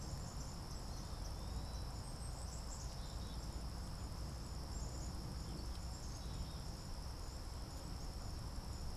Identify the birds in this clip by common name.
Swamp Sparrow, Black-capped Chickadee, Eastern Wood-Pewee